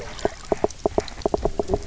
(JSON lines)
{"label": "biophony, knock croak", "recorder": "SoundTrap 300"}